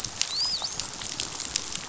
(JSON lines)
{"label": "biophony, dolphin", "recorder": "SoundTrap 500"}